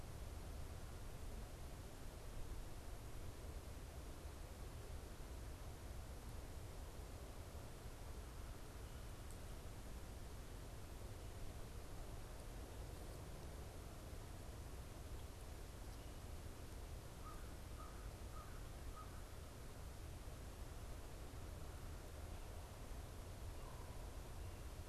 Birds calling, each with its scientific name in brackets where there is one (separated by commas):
American Crow (Corvus brachyrhynchos), Common Raven (Corvus corax)